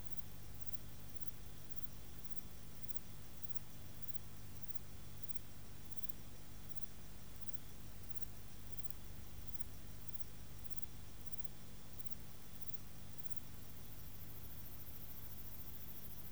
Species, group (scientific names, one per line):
Platycleis albopunctata
Orthoptera